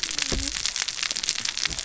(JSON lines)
{"label": "biophony, cascading saw", "recorder": "SoundTrap 600 or HydroMoth"}